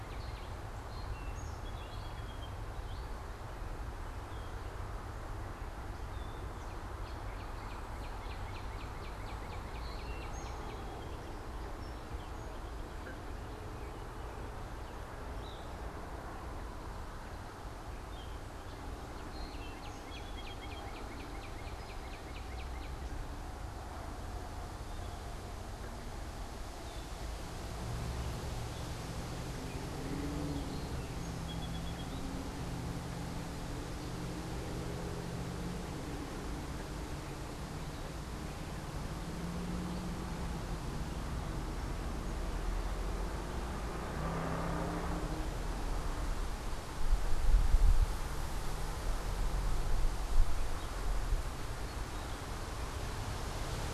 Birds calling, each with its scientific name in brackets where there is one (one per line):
Northern Cardinal (Cardinalis cardinalis)
Song Sparrow (Melospiza melodia)
Gray Catbird (Dumetella carolinensis)